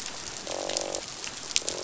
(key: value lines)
label: biophony, croak
recorder: SoundTrap 500